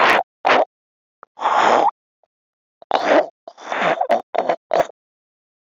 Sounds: Laughter